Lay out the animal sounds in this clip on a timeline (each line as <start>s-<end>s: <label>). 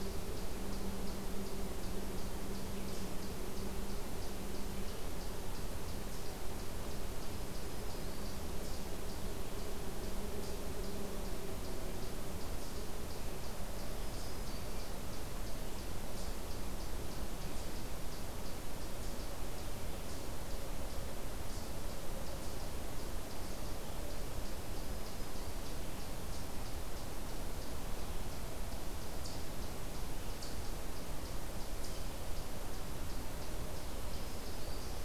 0.0s-35.0s: Eastern Chipmunk (Tamias striatus)
7.1s-8.9s: Black-throated Green Warbler (Setophaga virens)
13.8s-15.2s: Black-throated Green Warbler (Setophaga virens)
24.5s-25.9s: Black-throated Green Warbler (Setophaga virens)
34.0s-35.0s: Black-throated Green Warbler (Setophaga virens)